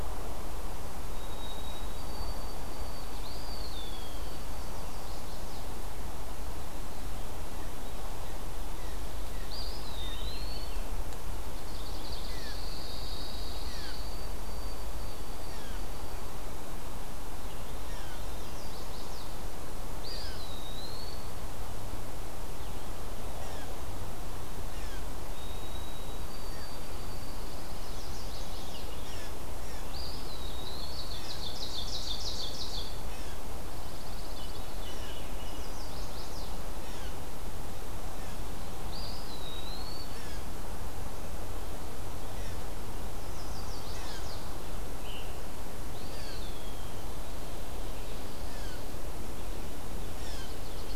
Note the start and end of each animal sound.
[0.88, 5.26] White-throated Sparrow (Zonotrichia albicollis)
[3.05, 4.42] Eastern Wood-Pewee (Contopus virens)
[4.53, 5.69] Chestnut-sided Warbler (Setophaga pensylvanica)
[8.61, 10.37] Blue Jay (Cyanocitta cristata)
[9.35, 10.85] Eastern Wood-Pewee (Contopus virens)
[11.61, 12.75] Ovenbird (Seiurus aurocapilla)
[12.12, 14.06] Pine Warbler (Setophaga pinus)
[12.19, 20.55] Blue Jay (Cyanocitta cristata)
[12.87, 16.41] White-throated Sparrow (Zonotrichia albicollis)
[17.20, 18.83] Veery (Catharus fuscescens)
[17.77, 19.39] Chestnut-sided Warbler (Setophaga pensylvanica)
[19.96, 21.21] Eastern Wood-Pewee (Contopus virens)
[23.23, 25.06] Blue Jay (Cyanocitta cristata)
[25.27, 27.69] White-throated Sparrow (Zonotrichia albicollis)
[27.11, 28.34] Pine Warbler (Setophaga pinus)
[27.61, 29.16] Veery (Catharus fuscescens)
[27.74, 28.84] Chestnut-sided Warbler (Setophaga pensylvanica)
[28.85, 29.94] Blue Jay (Cyanocitta cristata)
[29.79, 31.11] Eastern Wood-Pewee (Contopus virens)
[30.49, 33.04] Ovenbird (Seiurus aurocapilla)
[33.00, 50.95] Blue Jay (Cyanocitta cristata)
[33.67, 34.73] Pine Warbler (Setophaga pinus)
[34.30, 35.82] Veery (Catharus fuscescens)
[35.21, 36.62] Chestnut-sided Warbler (Setophaga pensylvanica)
[38.71, 40.10] Eastern Wood-Pewee (Contopus virens)
[43.12, 44.45] Chimney Swift (Chaetura pelagica)
[44.96, 45.37] Veery (Catharus fuscescens)
[45.84, 46.93] Eastern Wood-Pewee (Contopus virens)

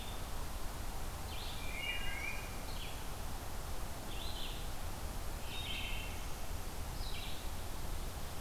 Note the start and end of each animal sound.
[0.00, 8.41] Red-eyed Vireo (Vireo olivaceus)
[1.61, 2.60] Wood Thrush (Hylocichla mustelina)
[5.50, 6.13] Wood Thrush (Hylocichla mustelina)

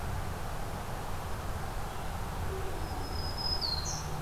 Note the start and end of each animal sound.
[2.64, 4.21] Black-throated Green Warbler (Setophaga virens)

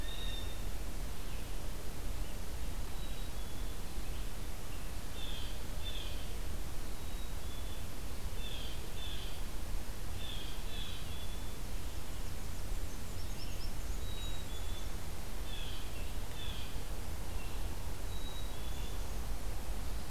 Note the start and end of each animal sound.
[0.00, 0.80] Blue Jay (Cyanocitta cristata)
[0.00, 20.10] Blue-headed Vireo (Vireo solitarius)
[2.86, 3.79] Black-capped Chickadee (Poecile atricapillus)
[5.07, 6.41] Blue Jay (Cyanocitta cristata)
[6.92, 7.95] Black-capped Chickadee (Poecile atricapillus)
[8.24, 9.42] Blue Jay (Cyanocitta cristata)
[10.09, 11.10] Blue Jay (Cyanocitta cristata)
[10.58, 11.60] Black-capped Chickadee (Poecile atricapillus)
[11.93, 14.84] Black-and-white Warbler (Mniotilta varia)
[13.76, 14.98] Black-capped Chickadee (Poecile atricapillus)
[15.33, 16.84] Blue Jay (Cyanocitta cristata)
[17.95, 18.99] Black-capped Chickadee (Poecile atricapillus)

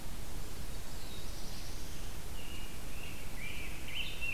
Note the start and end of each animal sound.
[0.69, 2.29] Black-throated Blue Warbler (Setophaga caerulescens)
[2.25, 4.33] American Robin (Turdus migratorius)
[3.21, 4.33] Rose-breasted Grosbeak (Pheucticus ludovicianus)

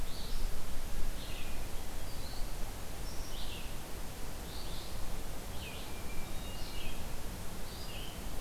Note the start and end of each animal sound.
[0.00, 8.41] Red-eyed Vireo (Vireo olivaceus)
[5.84, 6.71] Hermit Thrush (Catharus guttatus)

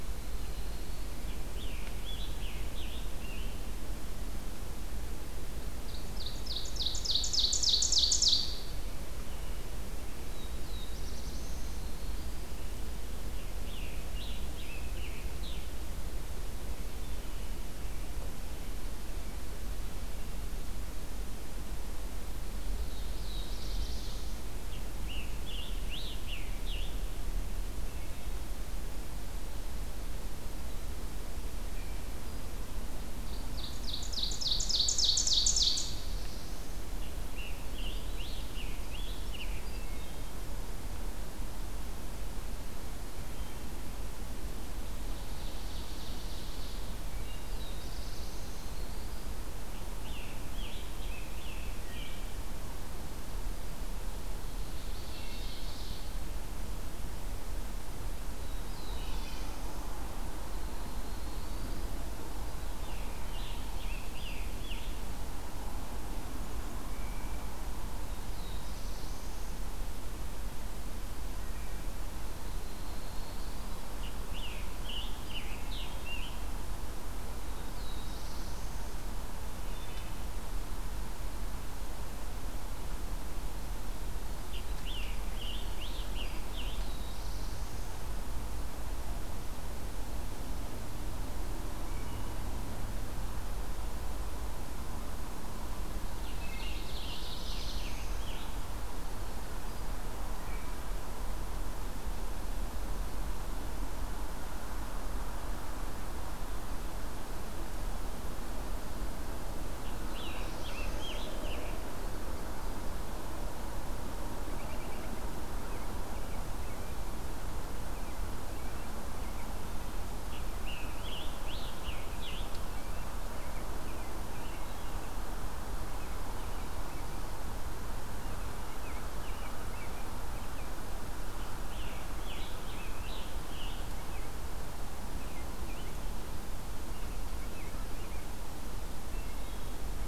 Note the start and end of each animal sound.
[0.07, 1.43] Prairie Warbler (Setophaga discolor)
[1.39, 3.49] Scarlet Tanager (Piranga olivacea)
[5.68, 8.79] Ovenbird (Seiurus aurocapilla)
[10.05, 12.00] Black-throated Blue Warbler (Setophaga caerulescens)
[11.43, 12.59] Prairie Warbler (Setophaga discolor)
[13.44, 15.74] Scarlet Tanager (Piranga olivacea)
[22.41, 24.49] Black-throated Blue Warbler (Setophaga caerulescens)
[24.62, 27.02] Scarlet Tanager (Piranga olivacea)
[33.25, 36.13] Ovenbird (Seiurus aurocapilla)
[35.26, 36.72] Black-throated Blue Warbler (Setophaga caerulescens)
[37.13, 39.91] Scarlet Tanager (Piranga olivacea)
[39.42, 40.42] Wood Thrush (Hylocichla mustelina)
[44.72, 47.09] Ovenbird (Seiurus aurocapilla)
[47.37, 49.51] Black-throated Blue Warbler (Setophaga caerulescens)
[48.47, 49.71] Prairie Warbler (Setophaga discolor)
[49.82, 52.26] Scarlet Tanager (Piranga olivacea)
[54.27, 56.21] Ovenbird (Seiurus aurocapilla)
[58.25, 60.02] Black-throated Blue Warbler (Setophaga caerulescens)
[60.34, 61.99] Prairie Warbler (Setophaga discolor)
[62.41, 65.14] Scarlet Tanager (Piranga olivacea)
[67.89, 69.78] Black-throated Blue Warbler (Setophaga caerulescens)
[71.31, 71.94] Wood Thrush (Hylocichla mustelina)
[72.13, 73.85] Prairie Warbler (Setophaga discolor)
[73.92, 76.45] Scarlet Tanager (Piranga olivacea)
[77.37, 79.53] Black-throated Blue Warbler (Setophaga caerulescens)
[79.59, 80.22] Wood Thrush (Hylocichla mustelina)
[84.34, 87.01] Scarlet Tanager (Piranga olivacea)
[86.60, 88.25] Black-throated Blue Warbler (Setophaga caerulescens)
[91.72, 92.44] Wood Thrush (Hylocichla mustelina)
[95.95, 98.56] Scarlet Tanager (Piranga olivacea)
[96.23, 97.01] Wood Thrush (Hylocichla mustelina)
[96.50, 98.21] Black-throated Blue Warbler (Setophaga caerulescens)
[100.22, 100.88] Wood Thrush (Hylocichla mustelina)
[109.68, 111.20] Black-throated Blue Warbler (Setophaga caerulescens)
[109.69, 112.07] Scarlet Tanager (Piranga olivacea)
[114.50, 117.15] American Robin (Turdus migratorius)
[117.88, 119.52] American Robin (Turdus migratorius)
[120.06, 122.80] Scarlet Tanager (Piranga olivacea)
[122.19, 125.25] American Robin (Turdus migratorius)
[124.31, 125.22] Wood Thrush (Hylocichla mustelina)
[125.73, 127.19] American Robin (Turdus migratorius)
[128.08, 130.85] American Robin (Turdus migratorius)
[131.44, 134.19] Scarlet Tanager (Piranga olivacea)
[135.10, 138.32] American Robin (Turdus migratorius)
[138.92, 139.93] Wood Thrush (Hylocichla mustelina)

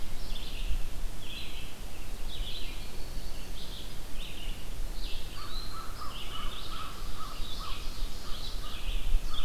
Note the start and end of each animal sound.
[0.00, 9.45] Red-eyed Vireo (Vireo olivaceus)
[2.57, 3.76] Black-throated Green Warbler (Setophaga virens)
[5.26, 6.05] Eastern Wood-Pewee (Contopus virens)
[5.27, 9.45] American Crow (Corvus brachyrhynchos)
[6.77, 8.72] Ovenbird (Seiurus aurocapilla)

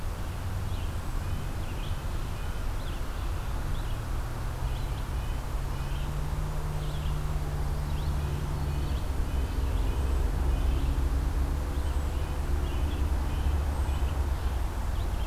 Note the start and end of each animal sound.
[0.00, 15.26] Red-breasted Nuthatch (Sitta canadensis)
[0.00, 15.26] Red-eyed Vireo (Vireo olivaceus)
[0.79, 4.86] American Crow (Corvus brachyrhynchos)

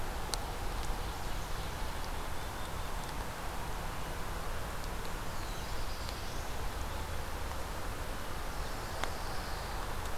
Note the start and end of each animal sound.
[1.66, 3.19] Black-capped Chickadee (Poecile atricapillus)
[4.91, 6.89] Black-throated Blue Warbler (Setophaga caerulescens)
[8.35, 9.90] Pine Warbler (Setophaga pinus)

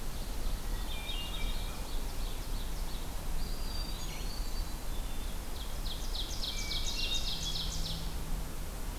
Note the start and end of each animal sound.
[0.09, 3.01] Ovenbird (Seiurus aurocapilla)
[0.64, 1.74] Hermit Thrush (Catharus guttatus)
[3.26, 4.55] Eastern Wood-Pewee (Contopus virens)
[3.32, 4.85] Hermit Thrush (Catharus guttatus)
[5.16, 8.03] Ovenbird (Seiurus aurocapilla)
[6.60, 7.76] Hermit Thrush (Catharus guttatus)

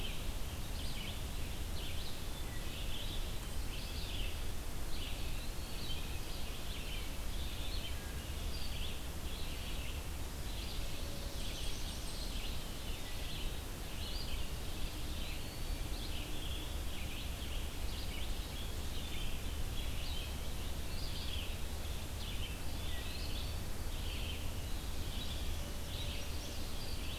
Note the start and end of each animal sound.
[0.00, 27.18] Red-eyed Vireo (Vireo olivaceus)
[2.21, 3.31] Wood Thrush (Hylocichla mustelina)
[4.75, 5.93] Eastern Wood-Pewee (Contopus virens)
[7.82, 8.35] Wood Thrush (Hylocichla mustelina)
[14.48, 15.88] Eastern Wood-Pewee (Contopus virens)
[22.36, 23.69] Eastern Wood-Pewee (Contopus virens)
[25.64, 26.70] Chestnut-sided Warbler (Setophaga pensylvanica)

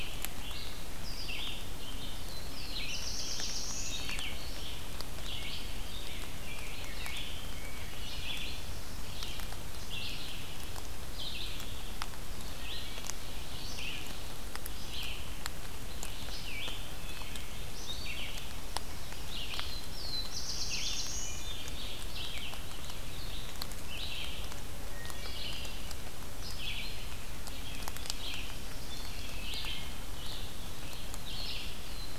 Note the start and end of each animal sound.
[0.00, 32.18] Red-eyed Vireo (Vireo olivaceus)
[1.94, 4.28] Black-throated Blue Warbler (Setophaga caerulescens)
[12.53, 13.20] Wood Thrush (Hylocichla mustelina)
[16.88, 17.61] Wood Thrush (Hylocichla mustelina)
[19.52, 21.38] Black-throated Blue Warbler (Setophaga caerulescens)
[21.14, 21.95] Wood Thrush (Hylocichla mustelina)
[24.85, 25.55] Wood Thrush (Hylocichla mustelina)
[28.74, 29.73] Wood Thrush (Hylocichla mustelina)

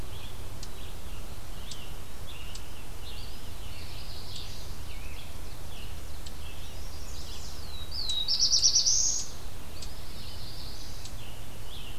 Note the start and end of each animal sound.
[0.00, 7.49] Scarlet Tanager (Piranga olivacea)
[0.00, 11.99] Eastern Chipmunk (Tamias striatus)
[0.00, 11.99] Red-eyed Vireo (Vireo olivaceus)
[3.71, 4.77] Chestnut-sided Warbler (Setophaga pensylvanica)
[4.79, 6.51] Ovenbird (Seiurus aurocapilla)
[6.38, 7.57] Chestnut-sided Warbler (Setophaga pensylvanica)
[7.44, 9.38] Black-throated Blue Warbler (Setophaga caerulescens)
[9.56, 11.99] Scarlet Tanager (Piranga olivacea)
[9.70, 11.10] Chestnut-sided Warbler (Setophaga pensylvanica)

